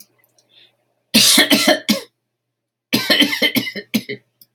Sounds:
Cough